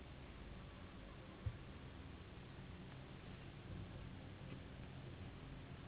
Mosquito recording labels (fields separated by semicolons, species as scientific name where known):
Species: Anopheles gambiae s.s.; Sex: female; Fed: unfed; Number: one; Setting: insect culture